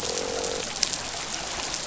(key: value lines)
label: biophony, croak
recorder: SoundTrap 500